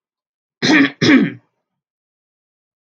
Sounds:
Throat clearing